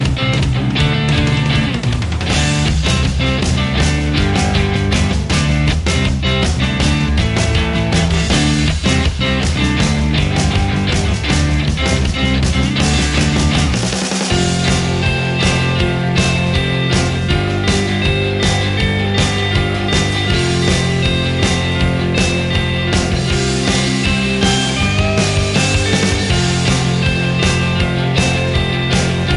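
0.0s A bass guitar playing a rock song. 13.4s
13.5s A rhythmic bass guitar plays rock music with high energy. 29.4s

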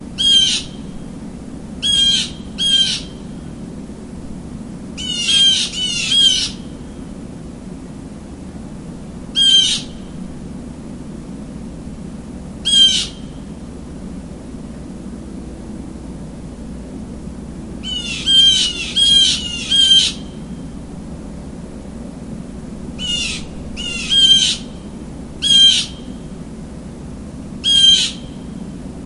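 0.1s A bird calls loudly once. 0.8s
1.7s A bird calls loudly twice with a short pause in between. 3.2s
4.8s Two birds call alternately. 6.6s
9.2s A bird calls loudly once. 9.9s
12.5s A bird calls loudly once. 13.2s
17.7s Multiple birds call loudly several times. 20.3s
22.9s Birds are calling loudly with short pauses in between. 24.8s
25.3s A bird calls loudly once. 26.0s
27.5s A bird calls loudly once. 28.2s

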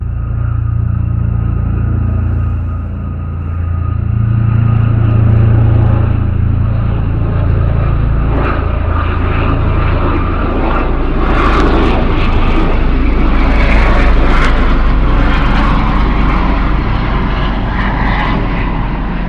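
0.1s An airplane flies past. 6.8s
6.9s An airplane is taking off. 19.2s

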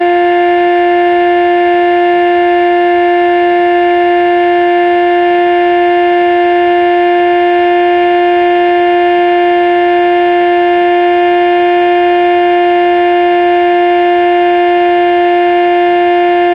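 0.0s A loud, steady, and continuous sound, like a vacuum cleaner or car horn. 16.5s

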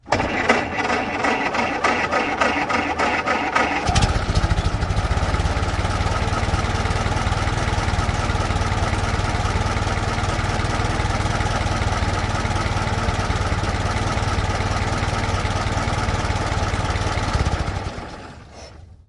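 0.0s A truck engine starting. 4.3s
4.3s A rhythmic truck engine sound. 18.4s
18.4s A quiet gasp. 19.0s

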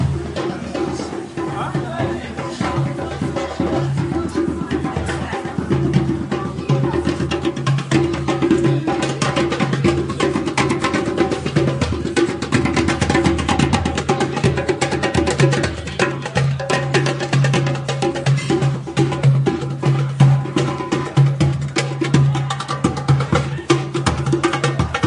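0.0s A person plays drums with a fast rhythm, starting quietly in the background and then getting louder. 25.1s
0.0s Several people are talking in the background, their individual conversations muffled and unclear. 25.1s
18.1s Metal clanking in the background. 18.7s

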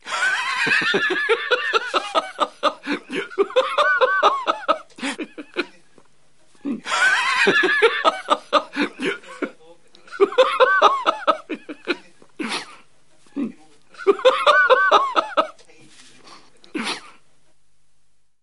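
0.0s A man laughs loudly with a clear, expressive tone. 5.9s
6.5s A man laughs loudly with a clear, expressive tone. 15.6s
16.5s A man sniffs. 17.2s

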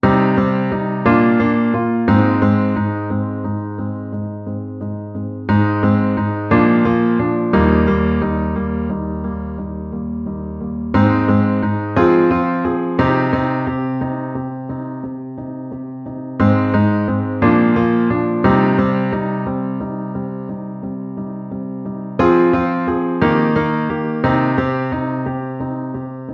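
0.0s A piano plays softly in a minor key with a continuous, repeating chord progression that fades slightly each time. 26.3s

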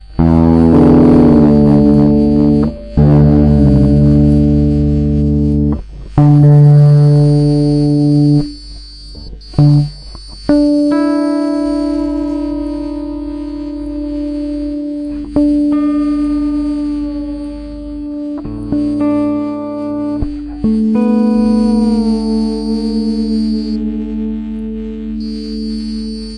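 0.0s A guitar being tuned with an echoing sound indoors. 26.4s

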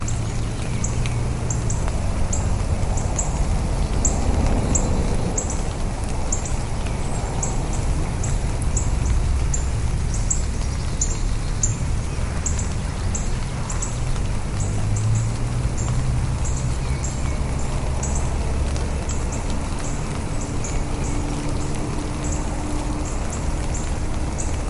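0.0s A bird chirping. 24.7s
0.0s A light wind blows constantly. 24.7s
0.0s Cars passing by. 24.7s
0.0s Light rain is falling. 24.7s

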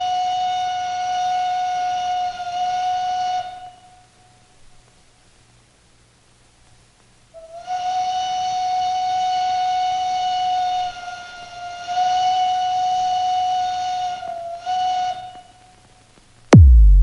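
0.0s A steam engine horn whistles in a monotone. 3.7s
7.5s A steam locomotive whistle mostly maintains a high pitch with occasional lower-pitched dips. 15.4s
16.5s A synthetic "badum" sound. 17.0s

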